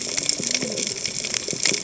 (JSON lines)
{"label": "biophony, cascading saw", "recorder": "HydroMoth"}